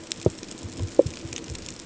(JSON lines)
{"label": "ambient", "recorder": "HydroMoth"}